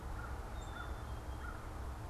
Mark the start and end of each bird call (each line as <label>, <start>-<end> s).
American Crow (Corvus brachyrhynchos), 0.0-2.1 s
Black-capped Chickadee (Poecile atricapillus), 0.0-2.1 s